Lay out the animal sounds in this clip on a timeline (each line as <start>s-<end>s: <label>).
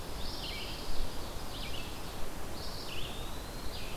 0.0s-1.3s: Pine Warbler (Setophaga pinus)
0.0s-4.0s: Red-eyed Vireo (Vireo olivaceus)
0.3s-2.4s: Ovenbird (Seiurus aurocapilla)
2.7s-3.9s: Eastern Wood-Pewee (Contopus virens)